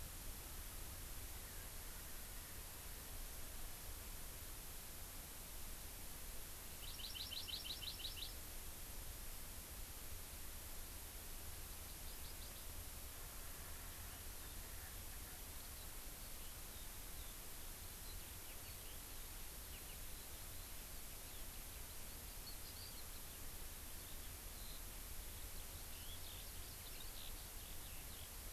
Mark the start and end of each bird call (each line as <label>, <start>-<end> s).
Hawaii Amakihi (Chlorodrepanis virens), 6.8-8.4 s
Hawaii Amakihi (Chlorodrepanis virens), 11.7-12.6 s
Eurasian Skylark (Alauda arvensis), 18.0-28.5 s